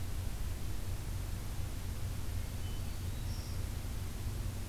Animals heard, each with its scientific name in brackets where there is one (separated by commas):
Hermit Thrush (Catharus guttatus), Black-throated Green Warbler (Setophaga virens)